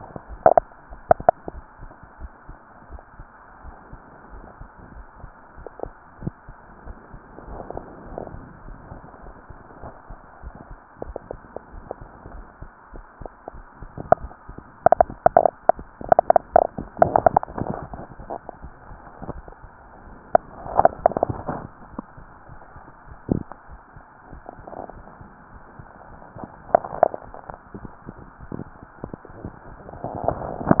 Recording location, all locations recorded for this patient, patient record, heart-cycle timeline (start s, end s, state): tricuspid valve (TV)
pulmonary valve (PV)+tricuspid valve (TV)+mitral valve (MV)
#Age: Child
#Sex: Female
#Height: nan
#Weight: nan
#Pregnancy status: False
#Murmur: Absent
#Murmur locations: nan
#Most audible location: nan
#Systolic murmur timing: nan
#Systolic murmur shape: nan
#Systolic murmur grading: nan
#Systolic murmur pitch: nan
#Systolic murmur quality: nan
#Diastolic murmur timing: nan
#Diastolic murmur shape: nan
#Diastolic murmur grading: nan
#Diastolic murmur pitch: nan
#Diastolic murmur quality: nan
#Outcome: Abnormal
#Campaign: 2015 screening campaign
0.00	1.52	unannotated
1.52	1.66	S1
1.66	1.82	systole
1.82	1.92	S2
1.92	2.20	diastole
2.20	2.32	S1
2.32	2.48	systole
2.48	2.58	S2
2.58	2.88	diastole
2.88	3.02	S1
3.02	3.18	systole
3.18	3.32	S2
3.32	3.62	diastole
3.62	3.76	S1
3.76	3.92	systole
3.92	4.02	S2
4.02	4.32	diastole
4.32	4.46	S1
4.46	4.60	systole
4.60	4.68	S2
4.68	4.94	diastole
4.94	5.04	S1
5.04	5.22	systole
5.22	5.32	S2
5.32	5.56	diastole
5.56	5.68	S1
5.68	5.84	systole
5.84	5.94	S2
5.94	6.20	diastole
6.20	6.34	S1
6.34	6.48	systole
6.48	6.58	S2
6.58	6.84	diastole
6.84	6.98	S1
6.98	7.12	systole
7.12	7.20	S2
7.20	7.46	diastole
7.46	7.62	S1
7.62	7.74	systole
7.74	7.84	S2
7.84	8.06	diastole
8.06	8.20	S1
8.20	8.32	systole
8.32	8.44	S2
8.44	8.64	diastole
8.64	8.78	S1
8.78	8.90	systole
8.90	8.98	S2
8.98	9.22	diastole
9.22	9.34	S1
9.34	9.48	systole
9.48	9.58	S2
9.58	9.82	diastole
9.82	9.92	S1
9.92	10.08	systole
10.08	10.16	S2
10.16	10.42	diastole
10.42	10.56	S1
10.56	10.70	systole
10.70	10.80	S2
10.80	11.06	diastole
11.06	11.20	S1
11.20	11.32	systole
11.32	11.42	S2
11.42	11.72	diastole
11.72	11.84	S1
11.84	12.00	systole
12.00	12.08	S2
12.08	12.32	diastole
12.32	12.46	S1
12.46	12.60	systole
12.60	12.70	S2
12.70	12.92	diastole
12.92	13.04	S1
13.04	13.20	systole
13.20	13.28	S2
13.28	13.52	diastole
13.52	13.64	S1
13.64	13.80	systole
13.80	13.90	S2
13.90	14.20	diastole
14.20	14.32	S1
14.32	14.48	systole
14.48	14.62	S2
14.62	30.80	unannotated